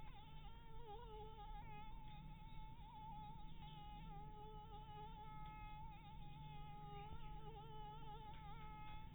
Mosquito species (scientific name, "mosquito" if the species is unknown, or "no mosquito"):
Anopheles dirus